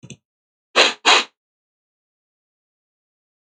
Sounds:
Sniff